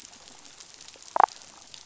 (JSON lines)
{"label": "biophony, damselfish", "recorder": "SoundTrap 500"}